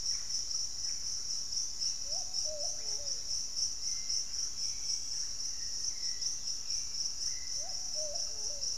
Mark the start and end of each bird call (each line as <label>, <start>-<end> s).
Russet-backed Oropendola (Psarocolius angustifrons), 0.0-8.8 s
Hauxwell's Thrush (Turdus hauxwelli), 3.7-7.9 s
Dusky-capped Greenlet (Pachysylvia hypoxantha), 5.8-8.8 s